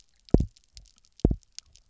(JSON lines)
{"label": "biophony, double pulse", "recorder": "SoundTrap 300"}